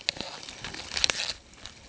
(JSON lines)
{"label": "ambient", "recorder": "HydroMoth"}